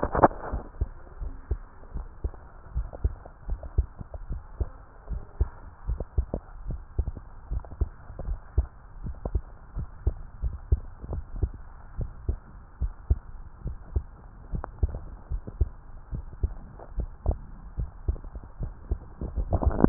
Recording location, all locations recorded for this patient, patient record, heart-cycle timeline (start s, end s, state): tricuspid valve (TV)
aortic valve (AV)+pulmonary valve (PV)+tricuspid valve (TV)+mitral valve (MV)
#Age: Child
#Sex: Female
#Height: 140.0 cm
#Weight: 33.3 kg
#Pregnancy status: False
#Murmur: Absent
#Murmur locations: nan
#Most audible location: nan
#Systolic murmur timing: nan
#Systolic murmur shape: nan
#Systolic murmur grading: nan
#Systolic murmur pitch: nan
#Systolic murmur quality: nan
#Diastolic murmur timing: nan
#Diastolic murmur shape: nan
#Diastolic murmur grading: nan
#Diastolic murmur pitch: nan
#Diastolic murmur quality: nan
#Outcome: Abnormal
#Campaign: 2015 screening campaign
0.00	0.88	unannotated
0.88	1.18	diastole
1.18	1.32	S1
1.32	1.50	systole
1.50	1.62	S2
1.62	1.94	diastole
1.94	2.08	S1
2.08	2.24	systole
2.24	2.34	S2
2.34	2.74	diastole
2.74	2.88	S1
2.88	3.00	systole
3.00	3.14	S2
3.14	3.48	diastole
3.48	3.60	S1
3.60	3.74	systole
3.74	3.88	S2
3.88	4.28	diastole
4.28	4.42	S1
4.42	4.56	systole
4.56	4.68	S2
4.68	5.10	diastole
5.10	5.22	S1
5.22	5.36	systole
5.36	5.50	S2
5.50	5.86	diastole
5.86	6.00	S1
6.00	6.14	systole
6.14	6.28	S2
6.28	6.66	diastole
6.66	6.82	S1
6.82	6.94	systole
6.94	7.06	S2
7.06	7.50	diastole
7.50	7.64	S1
7.64	7.80	systole
7.80	7.90	S2
7.90	8.24	diastole
8.24	8.38	S1
8.38	8.54	systole
8.54	8.68	S2
8.68	9.02	diastole
9.02	9.16	S1
9.16	9.32	systole
9.32	9.44	S2
9.44	9.76	diastole
9.76	9.88	S1
9.88	10.02	systole
10.02	10.12	S2
10.12	10.44	diastole
10.44	10.56	S1
10.56	10.68	systole
10.68	10.80	S2
10.80	11.12	diastole
11.12	11.24	S1
11.24	11.36	systole
11.36	11.52	S2
11.52	11.98	diastole
11.98	12.12	S1
12.12	12.26	systole
12.26	12.38	S2
12.38	12.80	diastole
12.80	12.94	S1
12.94	13.06	systole
13.06	13.20	S2
13.20	13.64	diastole
13.64	13.78	S1
13.78	13.94	systole
13.94	14.06	S2
14.06	14.52	diastole
14.52	14.64	S1
14.64	14.80	systole
14.80	14.96	S2
14.96	15.32	diastole
15.32	15.42	S1
15.42	15.58	systole
15.58	15.72	S2
15.72	16.14	diastole
16.14	16.26	S1
16.26	16.40	systole
16.40	16.54	S2
16.54	16.96	diastole
16.96	17.10	S1
17.10	17.26	systole
17.26	17.40	S2
17.40	17.76	diastole
17.76	17.90	S1
17.90	18.06	systole
18.06	18.20	S2
18.20	18.60	diastole
18.60	18.74	S1
18.74	18.90	systole
18.90	19.06	S2
19.06	19.22	diastole
19.22	19.89	unannotated